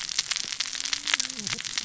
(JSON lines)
{"label": "biophony, cascading saw", "recorder": "SoundTrap 600 or HydroMoth"}